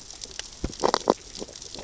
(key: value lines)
label: biophony, sea urchins (Echinidae)
recorder: SoundTrap 600 or HydroMoth